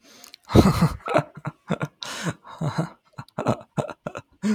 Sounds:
Laughter